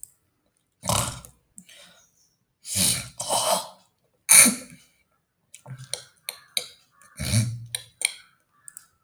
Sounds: Throat clearing